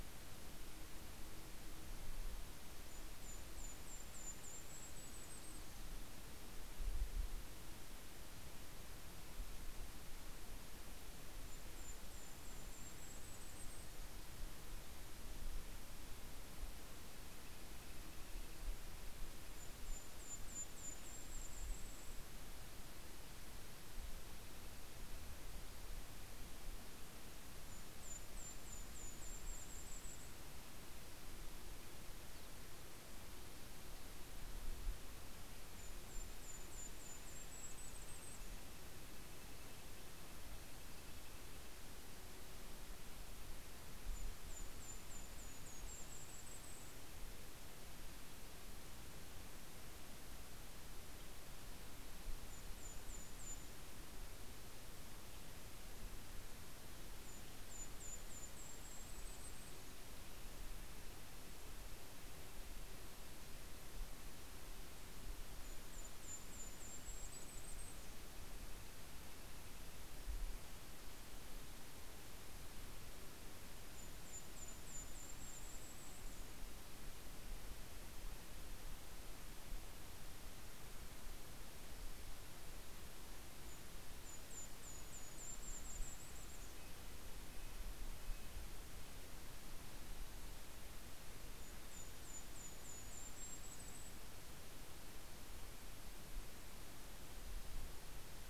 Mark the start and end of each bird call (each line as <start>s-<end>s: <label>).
1.7s-7.0s: Yellow-rumped Warbler (Setophaga coronata)
11.1s-14.7s: Yellow-rumped Warbler (Setophaga coronata)
18.7s-23.2s: Yellow-rumped Warbler (Setophaga coronata)
27.3s-31.1s: Golden-crowned Kinglet (Regulus satrapa)
31.8s-33.0s: Cassin's Finch (Haemorhous cassinii)
34.7s-40.0s: Golden-crowned Kinglet (Regulus satrapa)
35.1s-42.4s: Red-breasted Nuthatch (Sitta canadensis)
43.6s-47.6s: Golden-crowned Kinglet (Regulus satrapa)
52.1s-54.3s: Golden-crowned Kinglet (Regulus satrapa)
56.7s-60.3s: Golden-crowned Kinglet (Regulus satrapa)
58.5s-64.1s: Red-breasted Nuthatch (Sitta canadensis)
65.1s-68.8s: Golden-crowned Kinglet (Regulus satrapa)
66.9s-70.7s: Red-breasted Nuthatch (Sitta canadensis)
73.5s-77.0s: Golden-crowned Kinglet (Regulus satrapa)
83.3s-87.7s: Golden-crowned Kinglet (Regulus satrapa)
83.9s-89.6s: Red-breasted Nuthatch (Sitta canadensis)
91.0s-94.7s: Golden-crowned Kinglet (Regulus satrapa)